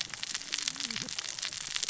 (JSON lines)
{"label": "biophony, cascading saw", "recorder": "SoundTrap 600 or HydroMoth"}